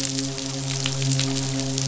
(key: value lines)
label: biophony, midshipman
recorder: SoundTrap 500